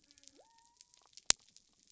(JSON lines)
{"label": "biophony", "recorder": "SoundTrap 300"}